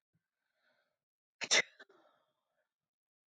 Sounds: Sneeze